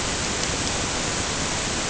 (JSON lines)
{"label": "ambient", "recorder": "HydroMoth"}